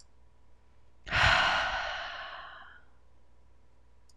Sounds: Sigh